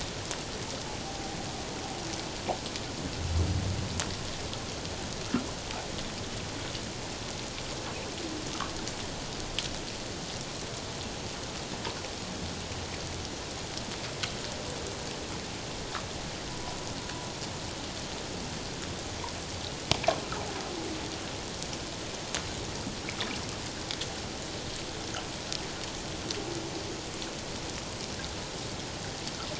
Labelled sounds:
1.0	1.4	humpback whale, 0.78 to 0.84 kHz
16.5	16.8	humpback whale, 0.94 to 1.0 kHz

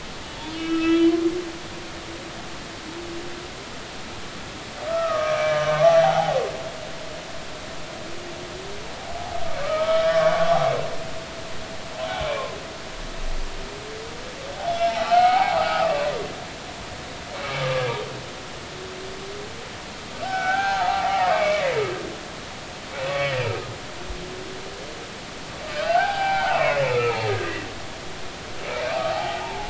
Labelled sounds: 0.4	1.1	humpback whale, 1.2 to 3.6 kHz
4.9	6.4	humpback whale, 0.80 to 3.1 kHz
9.6	10.6	humpback whale, 1.1 to 1.9 kHz
14.9	16.0	humpback whale, 0.80 to 2.3 kHz
17.6	17.9	humpback whale, 1.1 to 1.3 kHz
20.2	21.8	humpback whale, 0.80 to 2.4 kHz
23.1	23.4	humpback whale, 1.1 to 2.4 kHz
25.7	27.6	humpback whale, 0.80 to 2.8 kHz
28.7	29.6	humpback whale, 0.80 to 2.5 kHz

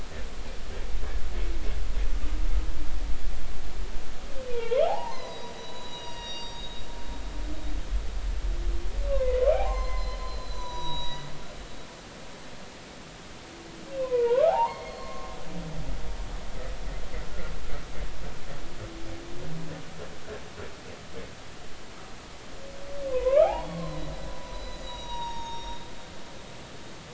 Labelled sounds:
4.5	6.8	humpback whale, 0.80 to 6.9 kHz
9.1	11.3	humpback whale, 0.80 to 7.0 kHz
14.0	15.4	humpback whale, 0.80 to 4.4 kHz
23.1	25.8	humpback whale, 0.80 to 6.7 kHz

